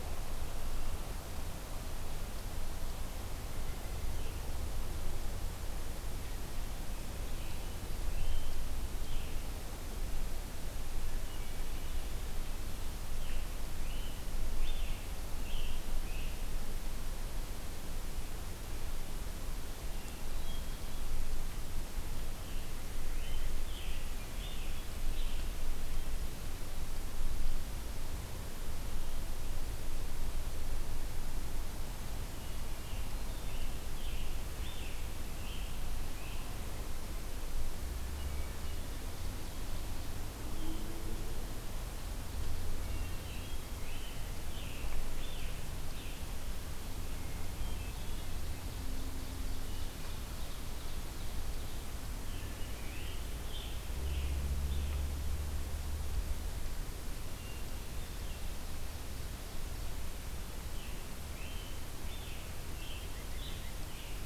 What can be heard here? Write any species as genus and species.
Sitta carolinensis, Piranga olivacea, Hylocichla mustelina, Catharus guttatus, Seiurus aurocapilla